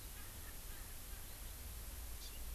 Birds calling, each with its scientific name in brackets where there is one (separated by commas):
Erckel's Francolin (Pternistis erckelii), Eurasian Skylark (Alauda arvensis), Hawaii Amakihi (Chlorodrepanis virens)